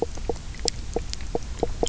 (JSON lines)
{"label": "biophony, knock croak", "recorder": "SoundTrap 300"}